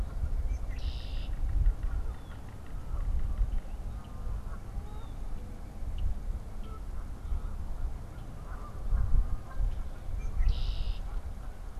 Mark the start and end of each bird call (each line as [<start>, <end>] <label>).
[0.00, 5.24] Blue Jay (Cyanocitta cristata)
[0.00, 5.24] Canada Goose (Branta canadensis)
[0.14, 3.94] Yellow-bellied Sapsucker (Sphyrapicus varius)
[0.24, 1.54] Red-winged Blackbird (Agelaius phoeniceus)
[8.14, 11.80] Canada Goose (Branta canadensis)
[10.04, 11.04] Red-winged Blackbird (Agelaius phoeniceus)